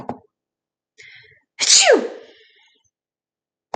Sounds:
Sneeze